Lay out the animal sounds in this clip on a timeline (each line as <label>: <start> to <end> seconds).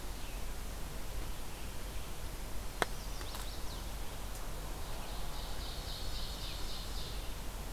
Red-eyed Vireo (Vireo olivaceus): 0.0 to 7.7 seconds
Chestnut-sided Warbler (Setophaga pensylvanica): 2.8 to 4.0 seconds
Ovenbird (Seiurus aurocapilla): 4.8 to 7.4 seconds